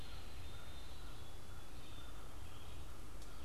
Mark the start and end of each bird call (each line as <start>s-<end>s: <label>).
0.0s-3.4s: Black-capped Chickadee (Poecile atricapillus)
0.0s-3.4s: Red-eyed Vireo (Vireo olivaceus)
0.0s-3.4s: Veery (Catharus fuscescens)